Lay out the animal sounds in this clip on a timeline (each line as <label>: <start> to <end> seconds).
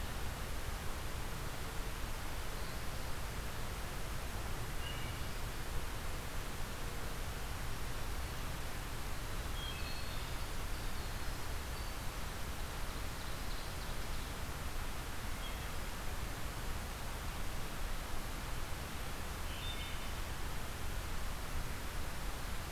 Wood Thrush (Hylocichla mustelina): 4.6 to 5.2 seconds
Wood Thrush (Hylocichla mustelina): 9.4 to 10.3 seconds
Winter Wren (Troglodytes hiemalis): 9.7 to 12.1 seconds
Ovenbird (Seiurus aurocapilla): 12.7 to 14.4 seconds
Wood Thrush (Hylocichla mustelina): 15.2 to 15.8 seconds
Wood Thrush (Hylocichla mustelina): 19.4 to 20.1 seconds